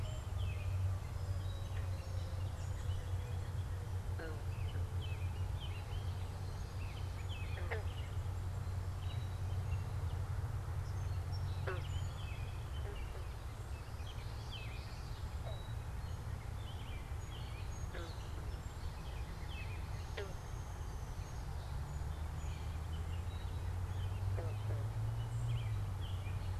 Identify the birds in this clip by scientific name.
Turdus migratorius, Geothlypis trichas, Melospiza melodia, Dryobates pubescens